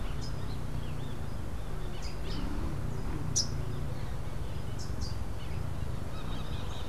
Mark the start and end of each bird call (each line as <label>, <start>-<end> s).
Crimson-fronted Parakeet (Psittacara finschi), 0.0-6.9 s